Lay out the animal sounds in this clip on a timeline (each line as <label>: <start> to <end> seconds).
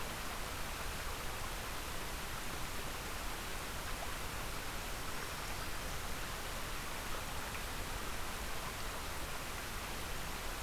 Black-throated Green Warbler (Setophaga virens): 4.8 to 5.9 seconds